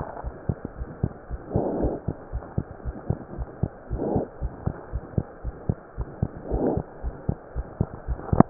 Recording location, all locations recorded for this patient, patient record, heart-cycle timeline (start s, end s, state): pulmonary valve (PV)
aortic valve (AV)+pulmonary valve (PV)+tricuspid valve (TV)+mitral valve (MV)
#Age: Child
#Sex: Female
#Height: 74.0 cm
#Weight: 7.8 kg
#Pregnancy status: False
#Murmur: Present
#Murmur locations: tricuspid valve (TV)
#Most audible location: tricuspid valve (TV)
#Systolic murmur timing: Early-systolic
#Systolic murmur shape: Decrescendo
#Systolic murmur grading: I/VI
#Systolic murmur pitch: Low
#Systolic murmur quality: Blowing
#Diastolic murmur timing: nan
#Diastolic murmur shape: nan
#Diastolic murmur grading: nan
#Diastolic murmur pitch: nan
#Diastolic murmur quality: nan
#Outcome: Abnormal
#Campaign: 2015 screening campaign
0.00	0.24	unannotated
0.24	0.34	S1
0.34	0.46	systole
0.46	0.56	S2
0.56	0.78	diastole
0.78	0.88	S1
0.88	1.00	systole
1.00	1.12	S2
1.12	1.32	diastole
1.32	1.40	S1
1.40	1.52	systole
1.52	1.66	S2
1.66	1.82	diastole
1.82	2.00	S1
2.00	2.06	systole
2.06	2.16	S2
2.16	2.34	diastole
2.34	2.44	S1
2.44	2.54	systole
2.54	2.66	S2
2.66	2.86	diastole
2.86	2.96	S1
2.96	3.08	systole
3.08	3.20	S2
3.20	3.38	diastole
3.38	3.48	S1
3.48	3.60	systole
3.60	3.70	S2
3.70	3.90	diastole
3.90	4.06	S1
4.06	4.14	systole
4.14	4.26	S2
4.26	4.42	diastole
4.42	4.52	S1
4.52	4.64	systole
4.64	4.74	S2
4.74	4.92	diastole
4.92	5.04	S1
5.04	5.16	systole
5.16	5.26	S2
5.26	5.46	diastole
5.46	5.56	S1
5.56	5.68	systole
5.68	5.78	S2
5.78	5.98	diastole
5.98	6.08	S1
6.08	6.20	systole
6.20	6.34	S2
6.34	6.50	diastole
6.50	6.61	S1
6.61	6.75	systole
6.75	6.82	S2
6.82	7.02	diastole
7.02	7.13	S1
7.13	7.27	systole
7.27	7.33	S2
7.33	7.55	diastole
7.55	7.64	S1
7.64	7.78	systole
7.78	7.85	S2
7.85	8.06	diastole
8.06	8.17	S1
8.17	8.50	unannotated